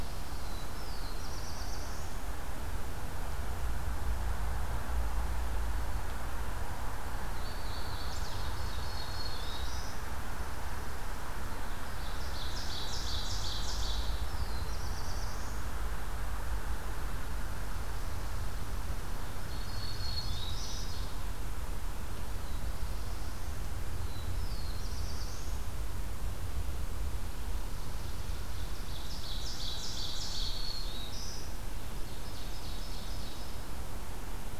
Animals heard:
Black-throated Green Warbler (Setophaga virens), Black-throated Blue Warbler (Setophaga caerulescens), Ovenbird (Seiurus aurocapilla), Hooded Warbler (Setophaga citrina), Chipping Sparrow (Spizella passerina)

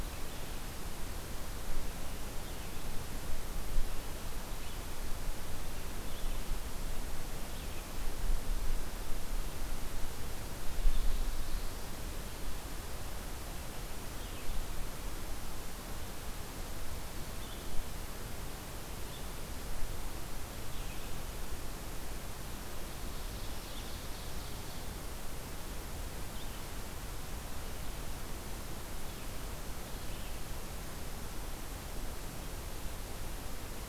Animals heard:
Red-eyed Vireo (Vireo olivaceus), Ovenbird (Seiurus aurocapilla), Black-throated Blue Warbler (Setophaga caerulescens)

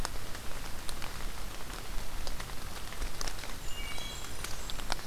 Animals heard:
Wood Thrush (Hylocichla mustelina), Blackburnian Warbler (Setophaga fusca)

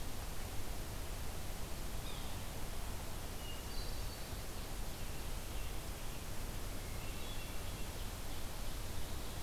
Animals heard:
Yellow-bellied Sapsucker (Sphyrapicus varius), Hermit Thrush (Catharus guttatus)

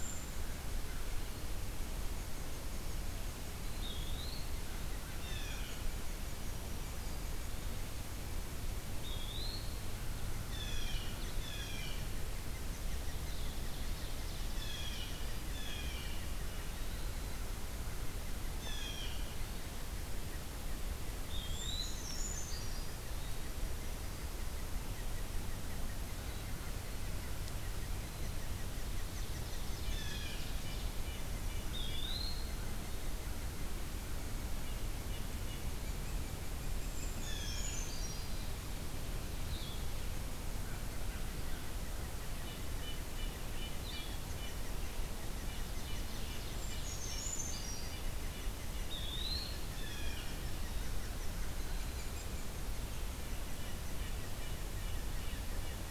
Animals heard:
Blue Jay (Cyanocitta cristata), Red-breasted Nuthatch (Sitta canadensis), Ovenbird (Seiurus aurocapilla), Red-eyed Vireo (Vireo olivaceus), Brown Creeper (Certhia americana), American Crow (Corvus brachyrhynchos), Eastern Wood-Pewee (Contopus virens), unidentified call

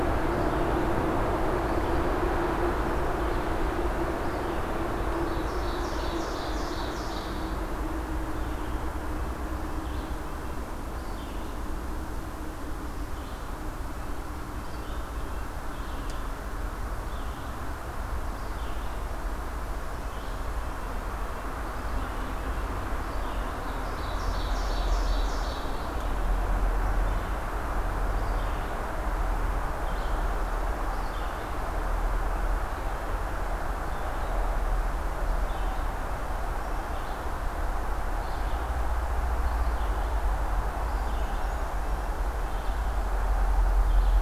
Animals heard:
Red-breasted Nuthatch (Sitta canadensis), Ovenbird (Seiurus aurocapilla), Red-eyed Vireo (Vireo olivaceus)

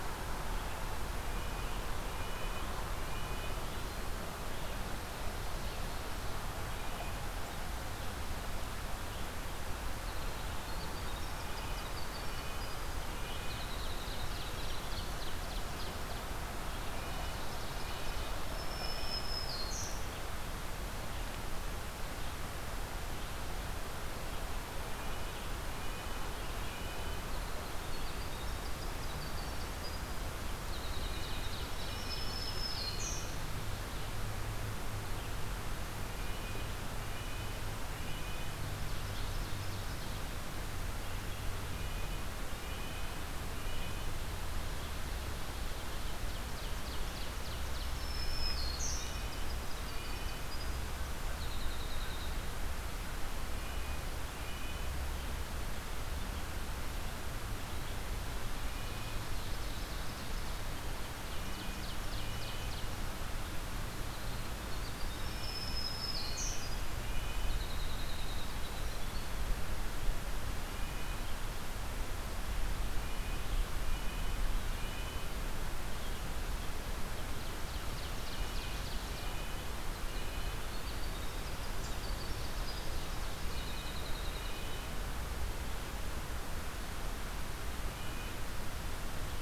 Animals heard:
Winter Wren (Troglodytes hiemalis), Eastern Wood-Pewee (Contopus virens), Red-breasted Nuthatch (Sitta canadensis), Black-throated Green Warbler (Setophaga virens), Ovenbird (Seiurus aurocapilla)

